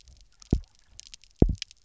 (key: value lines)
label: biophony, double pulse
recorder: SoundTrap 300